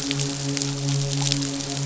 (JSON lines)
{"label": "biophony, midshipman", "recorder": "SoundTrap 500"}